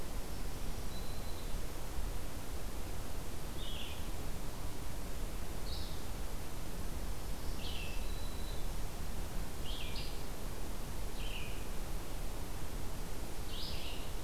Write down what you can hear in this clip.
Black-throated Green Warbler, Red-eyed Vireo